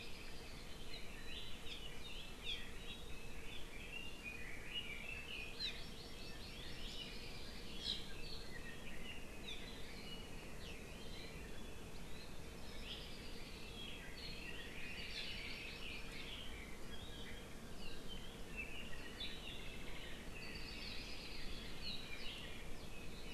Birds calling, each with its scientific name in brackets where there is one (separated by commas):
Apapane (Himatione sanguinea), Red-billed Leiothrix (Leiothrix lutea), Iiwi (Drepanis coccinea), Hawaii Creeper (Loxops mana), Hawaii Amakihi (Chlorodrepanis virens)